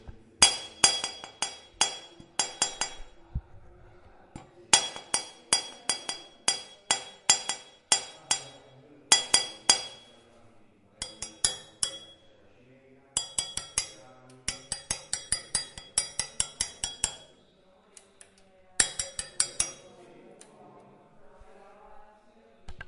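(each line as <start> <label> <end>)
0.3 Repeated clear, pitched metallic sounds. 3.1
4.6 Repeated clear metallic tones. 9.9
10.9 Muffled metallic sounds repeat. 12.0
13.0 Muffled metallic sounds repeat. 17.2
18.7 Muffled metallic sounds repeat. 19.9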